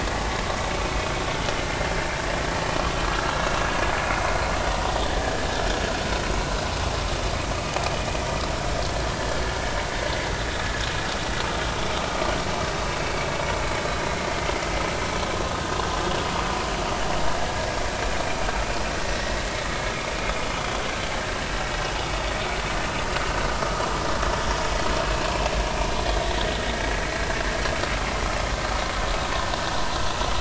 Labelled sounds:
14.1	14.3	vessel noise, 2.0 to 2.2 kHz

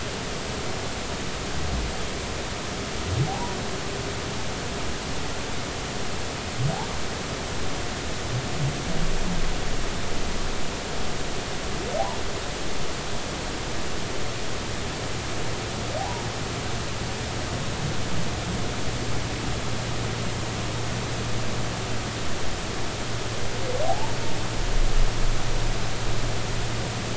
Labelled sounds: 3.3	3.6	humpback whale, 0.80 to 1.0 kHz
16.0	16.2	humpback whale, 0.80 to 1.0 kHz
23.8	24.2	humpback whale, 0.80 to 0.99 kHz

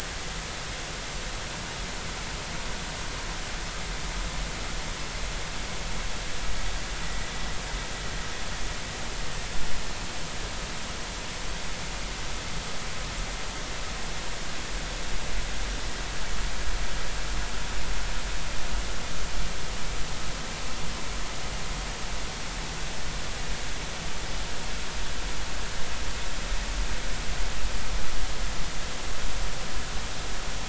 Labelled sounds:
7.0	7.3	vessel noise, 1.9 to 2.0 kHz

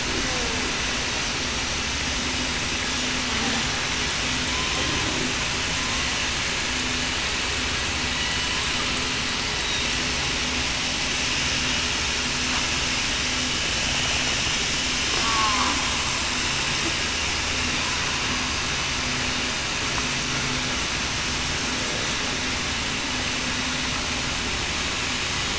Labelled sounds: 0.2	0.6	killer whale, southern resident, 0.45 to 0.54 kHz
15.2	15.7	killer whale, southern resident, 0.96 to 1.2 kHz

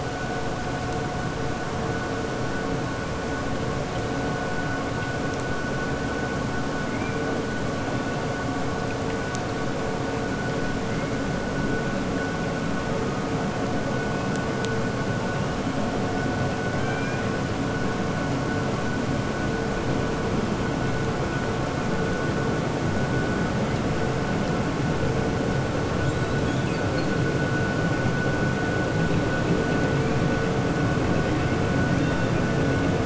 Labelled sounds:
16.7	17.2	killer whale, 0.81 to 3.2 kHz

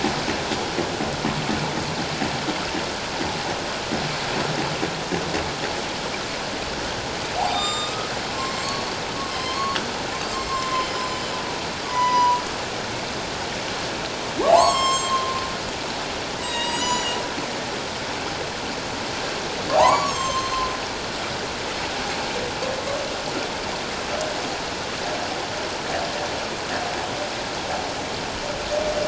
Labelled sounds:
7.4	8.1	humpback whale, 0.78 to 7.4 kHz
8.4	8.8	humpback whale, 2.1 to 4.5 kHz
9.3	9.8	humpback whale, 0.97 to 5.3 kHz
10.4	11.3	humpback whale, 0.97 to 7.6 kHz
11.9	12.4	humpback whale, 0.91 to 7.1 kHz
14.5	15.3	humpback whale, 0.78 to 7.8 kHz
16.4	17.2	humpback whale, 0.88 to 7.9 kHz
19.7	20.6	humpback whale, 0.78 to 7.7 kHz

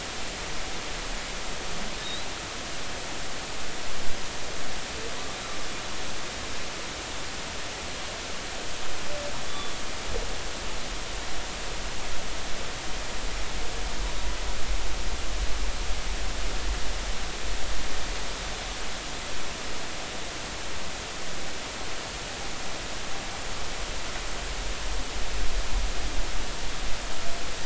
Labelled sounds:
2.0	2.3	humpback whale, 3.6 to 4.0 kHz
9.5	9.8	humpback whale, 3.3 to 3.6 kHz

